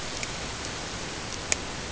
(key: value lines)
label: ambient
recorder: HydroMoth